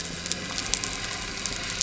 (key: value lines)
label: anthrophony, boat engine
recorder: SoundTrap 300